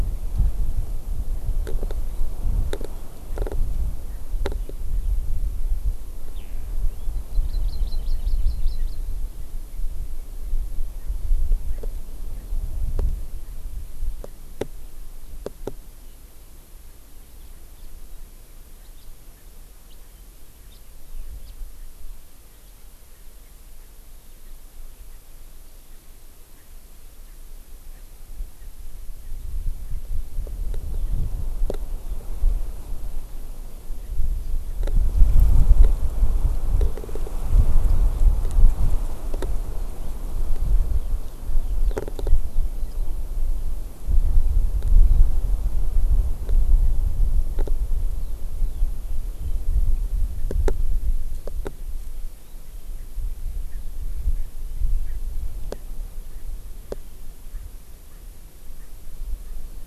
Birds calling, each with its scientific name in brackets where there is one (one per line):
Hawaii Amakihi (Chlorodrepanis virens)
Eurasian Skylark (Alauda arvensis)
Erckel's Francolin (Pternistis erckelii)
House Finch (Haemorhous mexicanus)